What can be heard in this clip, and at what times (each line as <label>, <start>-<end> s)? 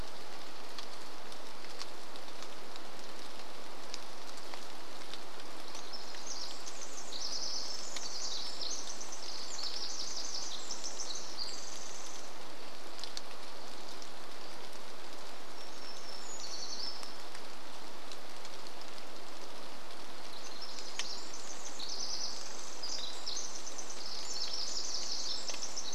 rain, 0-26 s
Pacific Wren song, 4-14 s
warbler song, 14-18 s
Pacific Wren song, 20-26 s